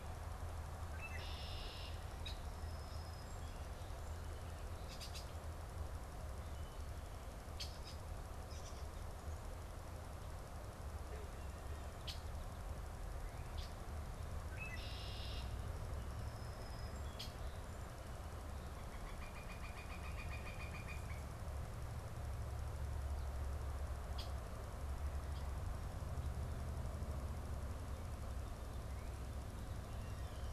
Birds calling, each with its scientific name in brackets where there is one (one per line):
Red-winged Blackbird (Agelaius phoeniceus)
Song Sparrow (Melospiza melodia)
Northern Flicker (Colaptes auratus)